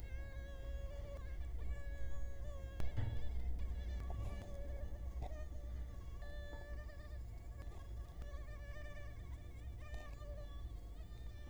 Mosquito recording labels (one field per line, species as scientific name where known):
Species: Culex quinquefasciatus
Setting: cup